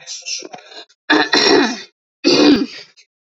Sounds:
Throat clearing